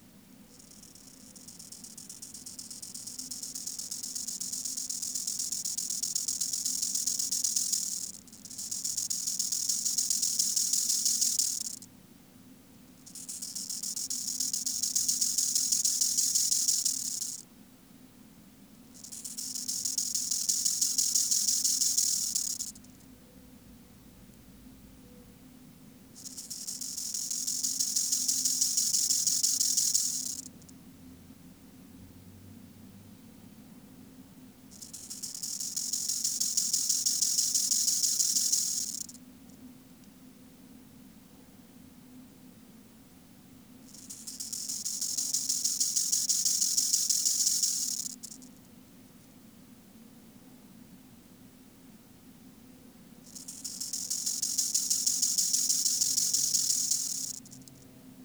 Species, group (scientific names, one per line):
Chorthippus biguttulus
Orthoptera